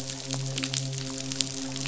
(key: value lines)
label: biophony, midshipman
recorder: SoundTrap 500